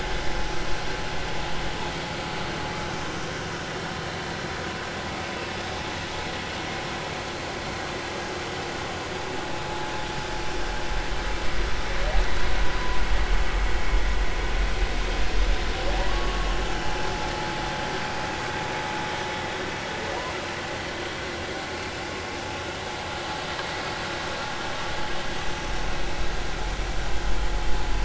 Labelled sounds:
16.0	16.5	humpback whale, 0.80 to 1.2 kHz

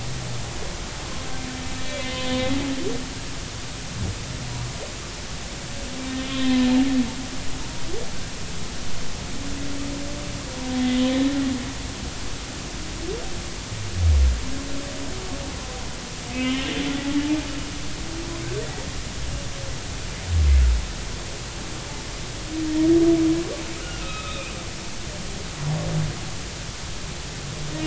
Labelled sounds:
1.8	2.5	humpback whale, 2.3 to 3.6 kHz
6.2	6.7	humpback whale, 0.96 to 3.5 kHz
16.3	16.6	humpback whale, 2.0 to 3.1 kHz
23.8	25.5	humpback whale, 1.2 to 3.9 kHz

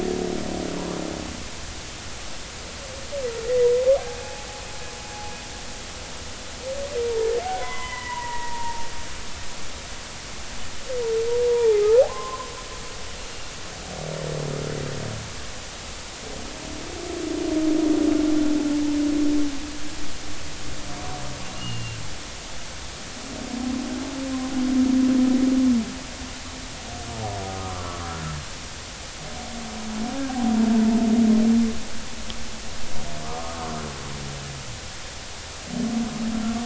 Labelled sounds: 4.2	4.5	humpback whale, 0.80 to 0.90 kHz
7.6	8.9	humpback whale, 0.86 to 3.5 kHz
11.5	12.5	humpback whale, 0.80 to 1.1 kHz
13.2	13.5	humpback whale, 2.6 to 2.9 kHz
27.5	28.0	humpback whale, 0.99 to 1.4 kHz
33.2	33.6	humpback whale, 0.93 to 1.3 kHz

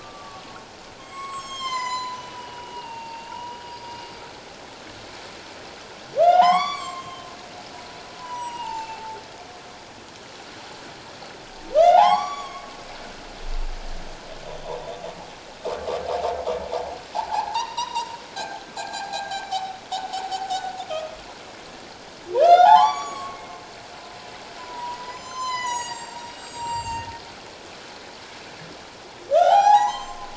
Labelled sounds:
0.0	0.4	humpback whale, 1.1 to 1.2 kHz
1.0	4.0	humpback whale, 0.81 to 8.0 kHz
6.2	7.3	humpback whale, 0.78 to 8.0 kHz
8.2	9.2	humpback whale, 0.78 to 7.9 kHz
11.8	12.7	humpback whale, 0.78 to 7.0 kHz
14.6	14.9	humpback whale, 0.84 to 1.1 kHz
17.3	19.7	humpback whale, 0.78 to 6.1 kHz
22.4	23.5	humpback whale, 0.78 to 7.9 kHz
24.6	27.1	humpback whale, 0.84 to 8.0 kHz
29.3	30.3	humpback whale, 0.78 to 7.9 kHz

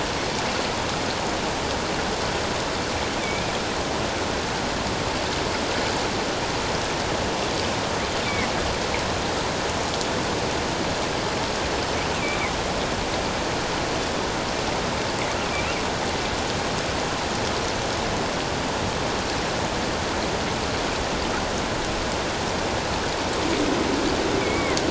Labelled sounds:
3.2	3.5	killer whale, northern resident, 2.2 to 2.5 kHz
24.4	24.8	killer whale, northern resident, 1.9 to 2.4 kHz

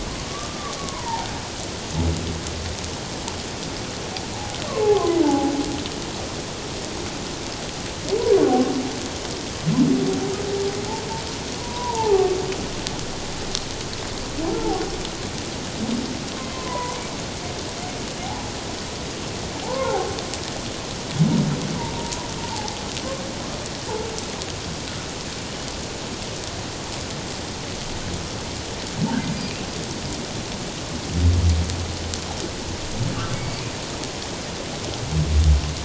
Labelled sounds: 0.5	1.3	humpback whale, 0.78 to 1.2 kHz
4.9	5.5	humpback whale, 0.78 to 1.2 kHz
11.6	12.3	humpback whale, 0.78 to 1.1 kHz
14.6	14.8	humpback whale, 0.78 to 0.94 kHz
16.5	17.0	humpback whale, 0.94 to 2.2 kHz
19.6	20.1	humpback whale, 0.78 to 1.1 kHz
21.8	22.8	humpback whale, 0.78 to 1.1 kHz
33.3	33.7	humpback whale, 2.2 to 2.4 kHz

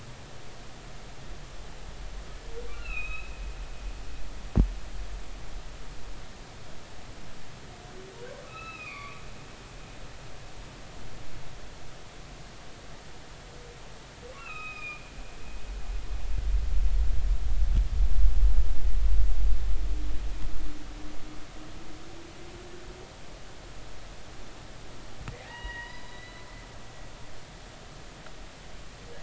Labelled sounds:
2.7	3.4	humpback whale, 1.2 to 4.3 kHz
8.5	9.2	humpback whale, 1.1 to 4.7 kHz
14.4	15.1	humpback whale, 1.2 to 5.1 kHz
25.5	26.5	humpback whale, 0.80 to 5.0 kHz

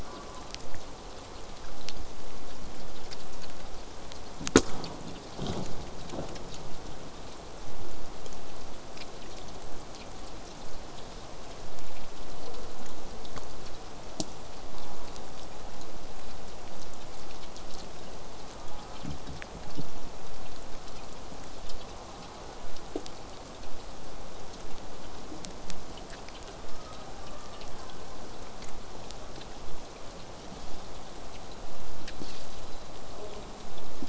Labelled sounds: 0.0	0.5	killer whale, southern resident, J pod, call S04, 0.65 to 1.6 kHz
14.8	15.2	killer whale, southern resident, J pod, call S04, 0.49 to 1.3 kHz
18.5	19.1	killer whale, southern resident, J pod, call S04, 0.22 to 1.4 kHz
22.0	22.6	killer whale, southern resident, J pod, call S04, 0.28 to 1.4 kHz
26.7	28.7	killer whale, southern resident, J pod, 0.85 to 2.0 kHz
33.0	33.5	killer whale, southern resident, J pod, call S04, 0.16 to 1.2 kHz

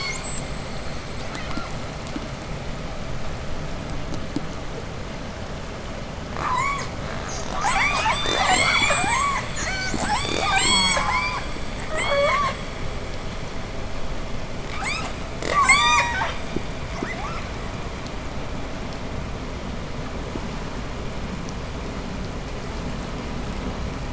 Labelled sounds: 1.1	2.0	killer whale, southern resident, J pod, 0.55 to 8.0 kHz
6.2	12.6	killer whale, southern resident, J pod, 0.13 to 8.0 kHz
10.3	11.5	killer whale, southern resident, J pod, call S04, 0.31 to 3.4 kHz
14.6	16.4	killer whale, southern resident, J pod, 0.23 to 8.0 kHz
17.0	17.5	killer whale, southern resident, J pod, 0.55 to 2.8 kHz

